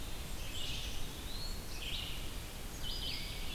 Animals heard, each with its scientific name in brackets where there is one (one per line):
Red-eyed Vireo (Vireo olivaceus)
Black-capped Chickadee (Poecile atricapillus)
Black-throated Green Warbler (Setophaga virens)